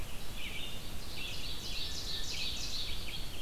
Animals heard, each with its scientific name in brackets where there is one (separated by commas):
Red-eyed Vireo (Vireo olivaceus), Ovenbird (Seiurus aurocapilla)